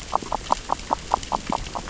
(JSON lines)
{"label": "biophony, grazing", "recorder": "SoundTrap 600 or HydroMoth"}